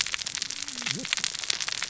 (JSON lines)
{"label": "biophony, cascading saw", "recorder": "SoundTrap 600 or HydroMoth"}